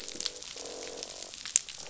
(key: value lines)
label: biophony, croak
recorder: SoundTrap 500